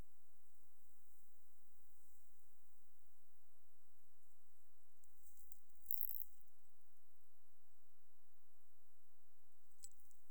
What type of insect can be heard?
orthopteran